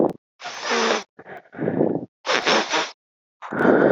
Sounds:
Sniff